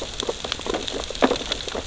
{"label": "biophony, sea urchins (Echinidae)", "recorder": "SoundTrap 600 or HydroMoth"}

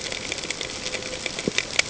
{"label": "ambient", "recorder": "HydroMoth"}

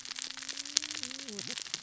{"label": "biophony, cascading saw", "recorder": "SoundTrap 600 or HydroMoth"}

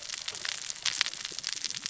{"label": "biophony, cascading saw", "recorder": "SoundTrap 600 or HydroMoth"}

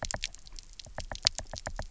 {"label": "biophony, knock", "recorder": "SoundTrap 300"}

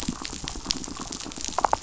{"label": "biophony, damselfish", "recorder": "SoundTrap 500"}
{"label": "biophony", "recorder": "SoundTrap 500"}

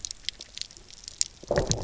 {"label": "biophony, low growl", "recorder": "SoundTrap 300"}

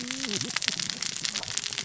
{"label": "biophony, cascading saw", "recorder": "SoundTrap 600 or HydroMoth"}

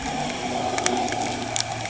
{"label": "anthrophony, boat engine", "recorder": "HydroMoth"}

